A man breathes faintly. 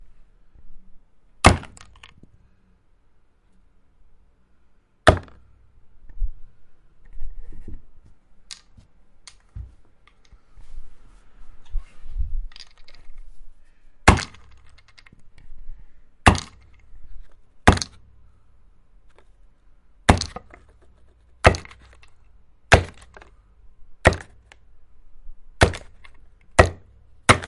0:07.1 0:08.6

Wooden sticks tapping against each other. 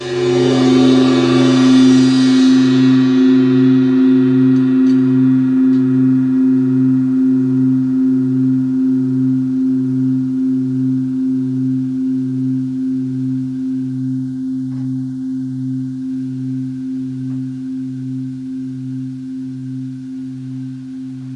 0:04.4 0:05.0, 0:05.8 0:06.0

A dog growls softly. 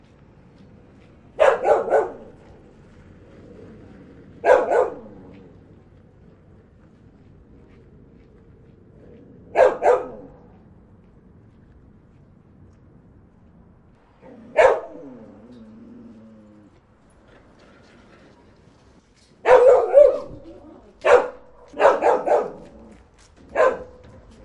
0:14.2 0:16.7

